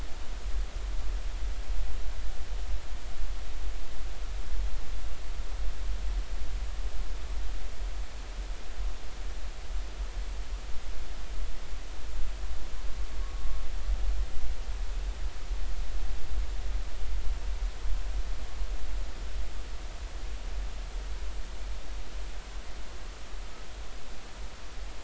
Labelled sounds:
13.2	13.6	humpback whale, 1.1 to 1.2 kHz

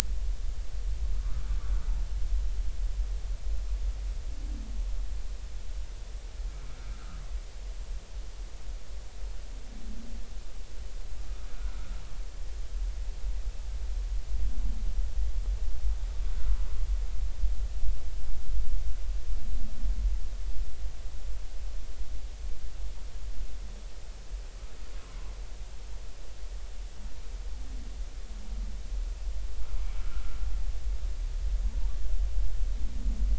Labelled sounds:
11.5	11.9	humpback whale, 1.2 to 1.6 kHz
30.0	30.4	humpback whale, 1.2 to 1.5 kHz

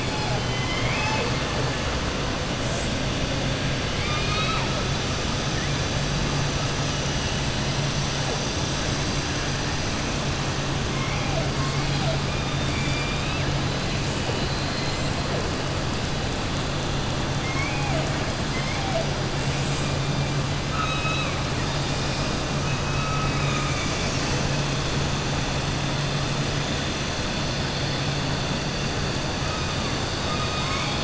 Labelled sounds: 3.9	4.7	killer whale, southern resident, 0.94 to 4.9 kHz
12.3	13.5	killer whale, southern resident, 1.7 to 4.6 kHz
14.3	15.0	killer whale, southern resident, 3.9 to 5.1 kHz
20.6	21.3	killer whale, southern resident, 1.2 to 3.9 kHz
22.9	24.1	killer whale, southern resident, 1.2 to 4.7 kHz

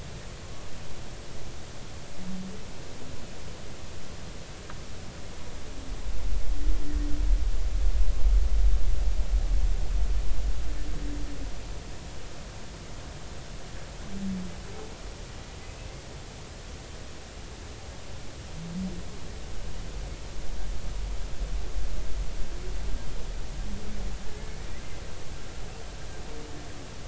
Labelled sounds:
15.6	15.9	humpback whale, 2.5 to 2.7 kHz
24.2	24.6	humpback whale, 1.6 to 2.2 kHz

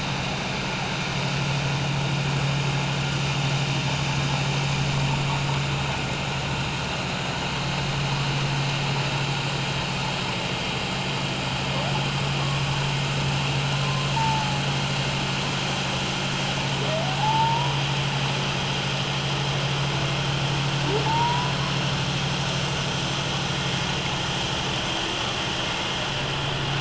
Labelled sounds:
12.4	12.7	humpback whale, 1.0 to 1.2 kHz
13.7	14.6	humpback whale, 0.81 to 1.1 kHz
17.2	17.7	humpback whale, 0.78 to 1.0 kHz
21.0	21.5	humpback whale, 0.81 to 1.0 kHz

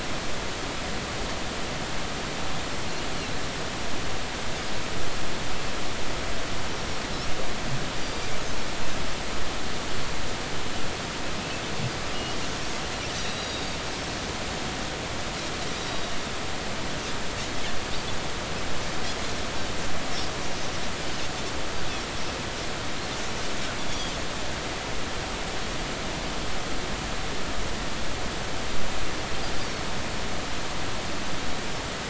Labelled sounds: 8.0	8.3	Pacific white-sided dolphin, 4.6 to 4.9 kHz
13.1	13.8	Pacific white-sided dolphin, 3.7 to 5.8 kHz
23.9	24.1	Pacific white-sided dolphin, 3.2 to 4.8 kHz
29.6	29.9	Pacific white-sided dolphin, 4.3 to 4.6 kHz

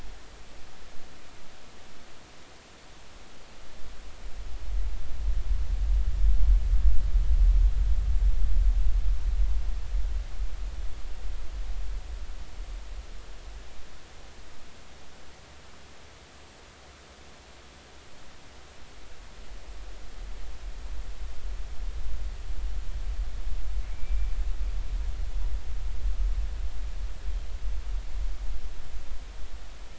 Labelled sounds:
23.9	24.3	killer whale, northern resident, G clan, GI subclan, call N23i, 2.1 to 2.4 kHz

